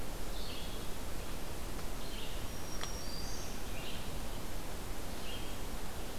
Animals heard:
Black-throated Green Warbler (Setophaga virens)
Red-eyed Vireo (Vireo olivaceus)

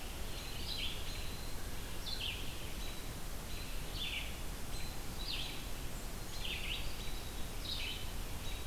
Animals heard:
Red-eyed Vireo (Vireo olivaceus)
American Robin (Turdus migratorius)
Black-capped Chickadee (Poecile atricapillus)
American Crow (Corvus brachyrhynchos)

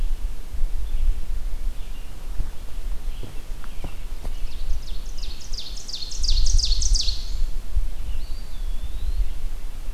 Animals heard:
Red-eyed Vireo (Vireo olivaceus)
Eastern Wood-Pewee (Contopus virens)
Ovenbird (Seiurus aurocapilla)

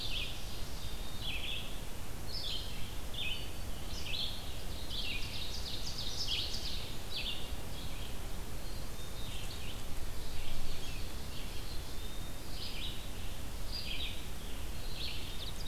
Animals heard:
Red-eyed Vireo (Vireo olivaceus)
Ovenbird (Seiurus aurocapilla)
Black-capped Chickadee (Poecile atricapillus)

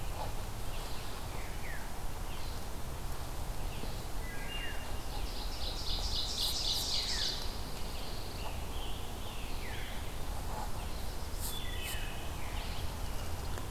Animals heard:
Ovenbird (Seiurus aurocapilla)
Pine Warbler (Setophaga pinus)
Veery (Catharus fuscescens)
Wood Thrush (Hylocichla mustelina)
Scarlet Tanager (Piranga olivacea)

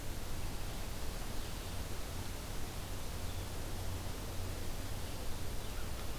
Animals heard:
Blue-headed Vireo (Vireo solitarius)

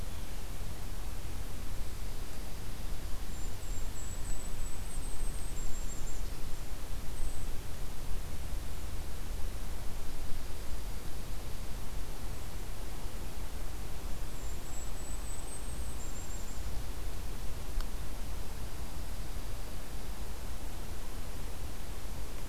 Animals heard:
Golden-crowned Kinglet (Regulus satrapa)
Dark-eyed Junco (Junco hyemalis)

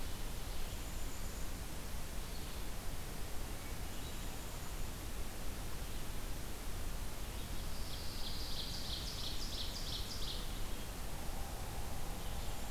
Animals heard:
Black-capped Chickadee (Poecile atricapillus)
Pine Warbler (Setophaga pinus)
Ovenbird (Seiurus aurocapilla)
Red-eyed Vireo (Vireo olivaceus)

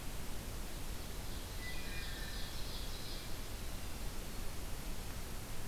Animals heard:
Wood Thrush (Hylocichla mustelina)
Ovenbird (Seiurus aurocapilla)

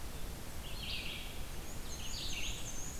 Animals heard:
Black-and-white Warbler (Mniotilta varia)
Red-eyed Vireo (Vireo olivaceus)

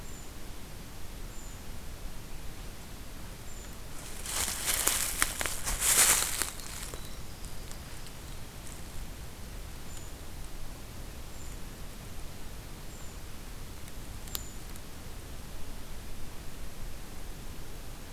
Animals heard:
Winter Wren (Troglodytes hiemalis)
Brown Creeper (Certhia americana)

